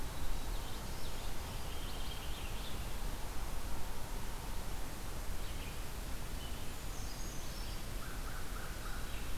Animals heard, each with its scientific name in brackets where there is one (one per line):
Brown Creeper (Certhia americana)
Common Yellowthroat (Geothlypis trichas)
Purple Finch (Haemorhous purpureus)
American Crow (Corvus brachyrhynchos)